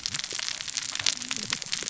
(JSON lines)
{"label": "biophony, cascading saw", "recorder": "SoundTrap 600 or HydroMoth"}